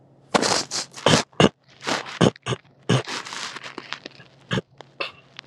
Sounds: Throat clearing